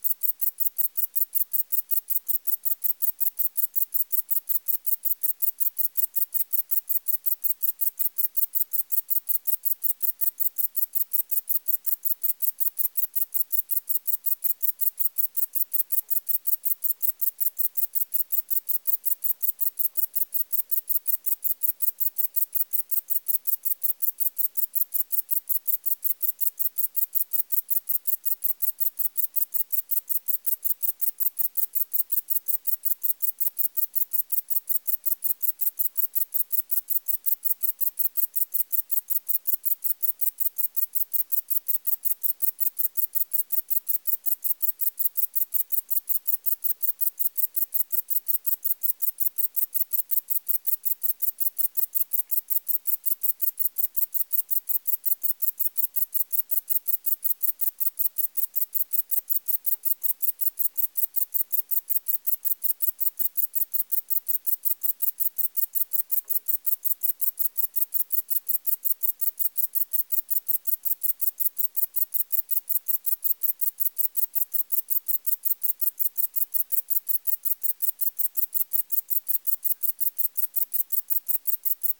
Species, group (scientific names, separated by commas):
Sepiana sepium, Orthoptera